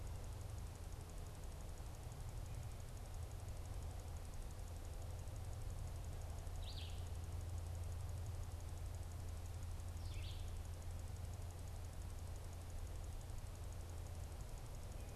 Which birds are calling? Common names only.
Red-eyed Vireo